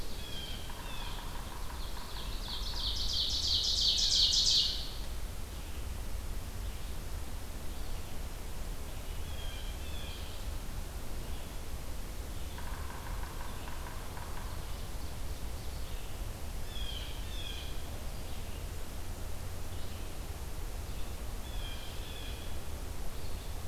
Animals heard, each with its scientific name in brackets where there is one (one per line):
Ovenbird (Seiurus aurocapilla)
Blue Jay (Cyanocitta cristata)
Red-eyed Vireo (Vireo olivaceus)
Yellow-bellied Sapsucker (Sphyrapicus varius)